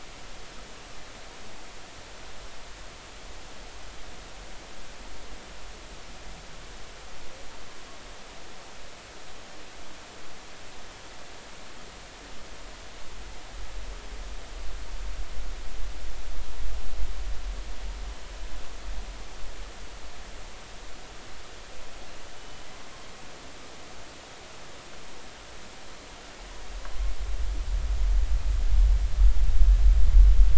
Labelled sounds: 22.4	22.6	humpback whale, 2.9 to 3.0 kHz

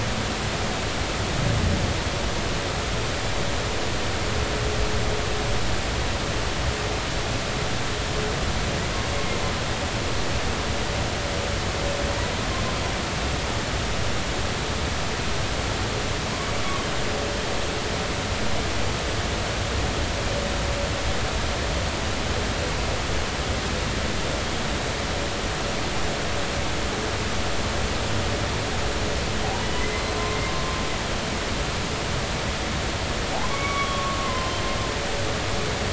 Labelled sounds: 29.7	30.1	humpback whale, 2.0 to 2.1 kHz
33.5	34.6	humpback whale, 0.96 to 3.4 kHz

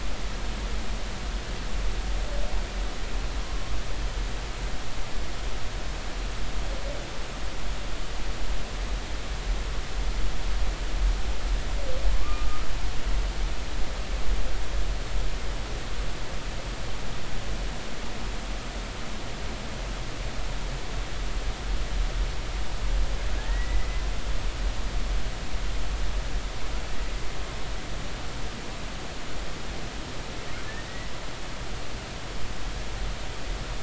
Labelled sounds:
12.1	12.5	humpback whale, 0.99 to 1.3 kHz
23.5	23.9	humpback whale, 1.8 to 2.1 kHz

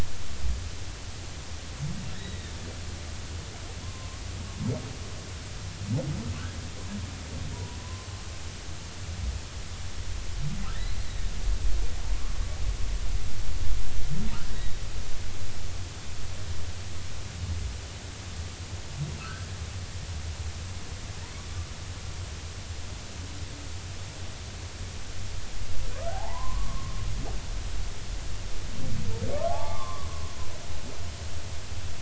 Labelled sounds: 3.8	4.2	humpback whale, 0.96 to 1.1 kHz
7.5	8.1	humpback whale, 0.83 to 1.1 kHz
10.7	11.3	humpback whale, 1.8 to 4.3 kHz
14.5	14.8	humpback whale, 1.8 to 4.0 kHz
19.2	19.5	humpback whale, 1.2 to 1.7 kHz
26.0	26.9	humpback whale, 0.80 to 1.6 kHz
29.3	30.1	humpback whale, 0.80 to 3.5 kHz

